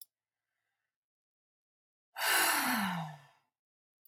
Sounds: Sigh